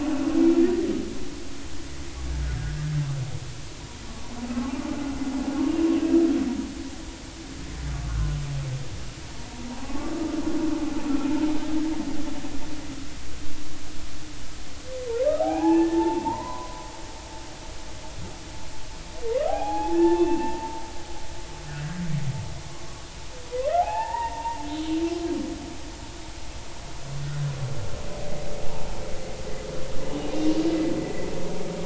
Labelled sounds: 7.9	8.2	humpback whale, 1.1 to 1.3 kHz
9.8	10.1	humpback whale, 0.80 to 1.2 kHz
15.2	16.9	humpback whale, 0.80 to 1.8 kHz
19.5	20.8	humpback whale, 0.80 to 3.6 kHz
23.5	24.7	humpback whale, 0.80 to 2.8 kHz
30.3	30.6	humpback whale, 2.7 to 2.9 kHz
31.0	31.3	humpback whale, 1.9 to 2.0 kHz

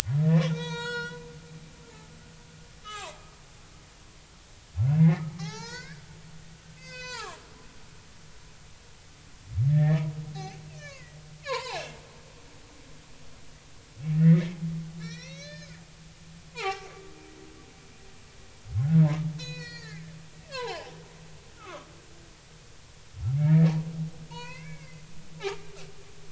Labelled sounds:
0.5	1.2	humpback whale, 0.90 to 7.8 kHz
2.8	3.2	humpback whale, 0.90 to 3.8 kHz
5.0	6.0	humpback whale, 0.80 to 7.7 kHz
6.8	7.4	humpback whale, 0.80 to 7.2 kHz
9.7	11.8	humpback whale, 0.80 to 4.8 kHz
14.1	14.6	humpback whale, 1.7 to 2.3 kHz
15.0	15.8	humpback whale, 1.2 to 6.7 kHz
16.5	16.9	humpback whale, 0.80 to 4.4 kHz
19.4	20.1	humpback whale, 0.90 to 7.1 kHz
20.5	20.9	humpback whale, 0.80 to 4.5 kHz
21.5	21.9	humpback whale, 0.99 to 1.5 kHz
23.3	23.7	humpback whale, 1.6 to 2.4 kHz
24.3	25.0	humpback whale, 0.86 to 4.9 kHz
25.4	25.6	humpback whale, 1.1 to 1.4 kHz

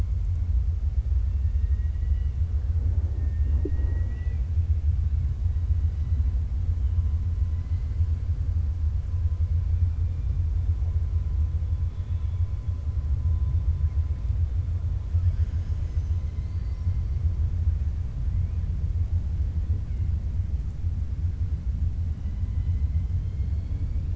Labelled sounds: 1.3	2.3	killer whale, 1.3 to 3.7 kHz
11.8	12.5	killer whale, 1.9 to 3.9 kHz
22.1	24.1	killer whale, 1.7 to 4.5 kHz

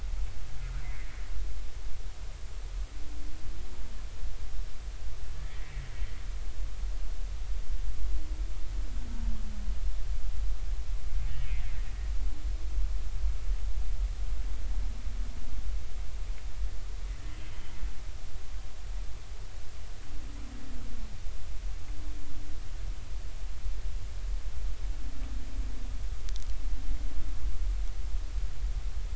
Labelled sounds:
0.8	1.2	humpback whale, 1.8 to 2.3 kHz
5.3	5.7	humpback whale, 1.7 to 2.0 kHz
11.4	11.7	humpback whale, 2.0 to 2.6 kHz

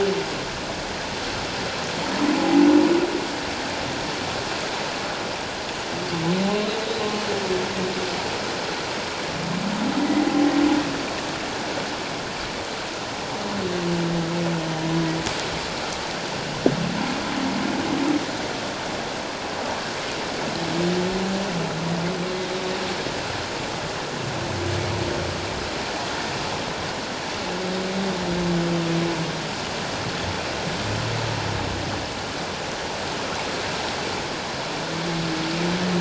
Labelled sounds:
2.3	2.6	humpback whale, 0.78 to 0.88 kHz

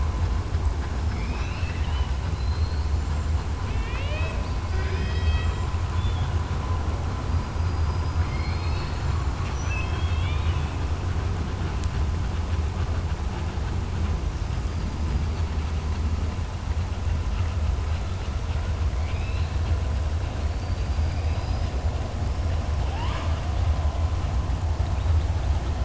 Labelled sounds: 1.1	2.9	killer whale, southern resident, 1.6 to 6.0 kHz
3.6	5.6	killer whale, southern resident, 0.55 to 5.2 kHz
5.9	6.3	killer whale, southern resident, 2.4 to 3.6 kHz
8.1	9.1	killer whale, southern resident, 1.5 to 5.1 kHz
9.3	10.7	killer whale, southern resident, 1.2 to 6.0 kHz
18.9	19.5	killer whale, southern resident, 2.1 to 4.4 kHz
20.5	21.7	killer whale, southern resident, 3.9 to 5.9 kHz
22.8	23.4	killer whale, southern resident, 0.85 to 5.3 kHz

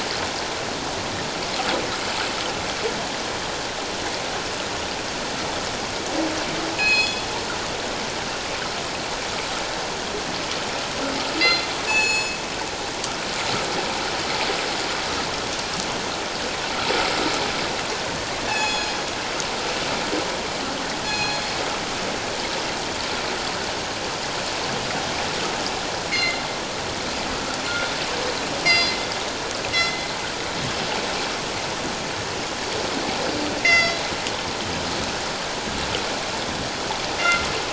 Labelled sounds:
6.7	7.3	killer whale, northern resident, G clan, call N24ii, 2.4 to 6.9 kHz
11.4	12.4	killer whale, northern resident, G clan, call N24ii, 2.5 to 7.9 kHz
18.4	19.0	killer whale, northern resident, G clan, call N24ii, 1.6 to 7.8 kHz
21.0	21.5	killer whale, northern resident, G clan, call N24ii, 2.4 to 6.9 kHz
26.1	26.4	killer whale, northern resident, G clan, call N24ii, 2.0 to 4.3 kHz
28.6	30.1	killer whale, northern resident, G clan, call N24ii, 1.9 to 5.0 kHz
33.6	34.1	killer whale, northern resident, G clan, call N24ii, 1.8 to 7.0 kHz
37.2	37.5	killer whale, northern resident, G clan, call N24ii, 2.0 to 2.2 kHz

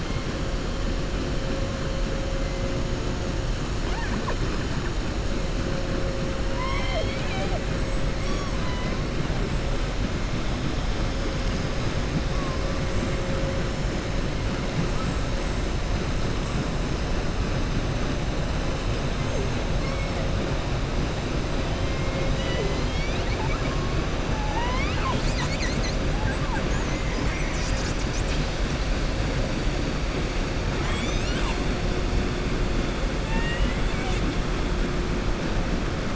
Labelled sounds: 6.4	7.6	killer whale, southern resident, 0.54 to 5.6 kHz
19.8	20.1	killer whale, southern resident, 2.1 to 2.9 kHz
26.8	27.6	killer whale, southern resident, 1.6 to 2.5 kHz

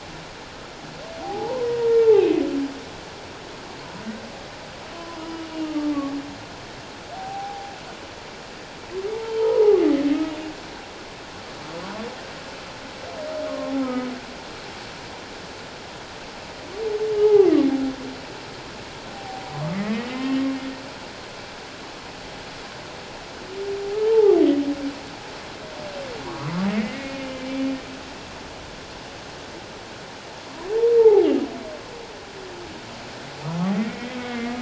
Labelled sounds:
1.2	2.4	humpback whale, 0.78 to 2.8 kHz
5.3	5.9	humpback whale, 1.1 to 3.0 kHz
7.1	7.7	humpback whale, 0.78 to 0.88 kHz
9.4	9.8	humpback whale, 0.78 to 1.0 kHz
13.5	13.7	humpback whale, 1.0 to 1.1 kHz
17.2	17.5	humpback whale, 0.78 to 0.91 kHz
19.1	20.4	humpback whale, 0.78 to 3.3 kHz
24.0	24.4	humpback whale, 0.78 to 0.94 kHz
26.3	27.6	humpback whale, 0.94 to 2.5 kHz
31.0	31.3	humpback whale, 0.78 to 0.97 kHz
33.8	34.6	humpback whale, 1.2 to 2.4 kHz

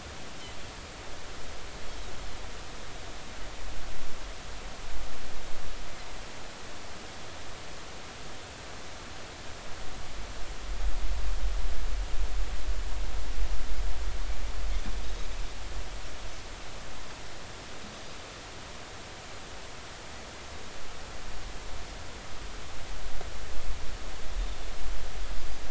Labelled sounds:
15.0	15.3	Pacific white-sided dolphin, 3.7 to 3.9 kHz

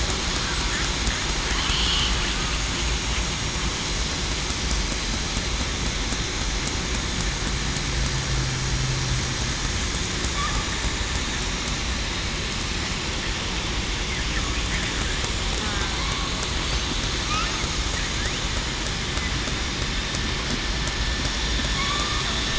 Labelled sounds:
21.8	22.2	killer whale, southern resident, 1.1 to 1.3 kHz

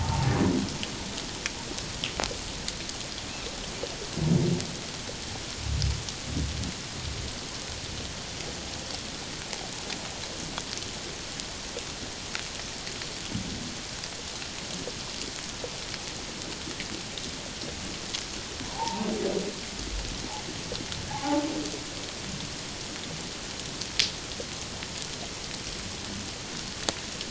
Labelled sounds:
18.6	19.1	humpback whale, 0.78 to 1.1 kHz
21.1	21.4	humpback whale, 0.78 to 1.2 kHz

